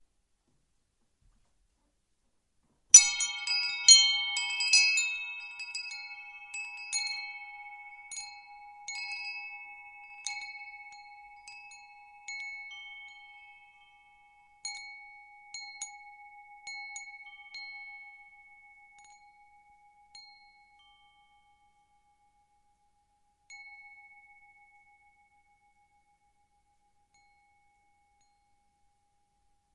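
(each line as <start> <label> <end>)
3.0 Wind chimes start with a loud, clear tinkling sound and slowly quiet down, producing irregular and rhythmic tones in a quiet environment. 13.4
14.6 Wind chimes tinkle softly, creating light metallic sounds in a quiet environment. 18.9
20.1 Wind chimes tinkle twice, making soft and light metallic sounds. 21.6
23.3 Wind chimes tinkle once, producing soft and light metallic sounds. 24.9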